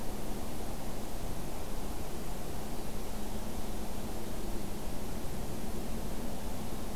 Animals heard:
forest ambience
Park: Acadia National Park